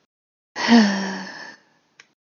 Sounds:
Sigh